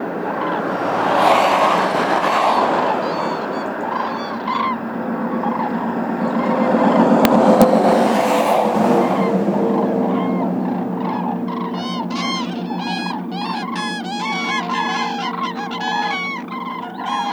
Does a man made noise interrupt the noises made by the animals?
yes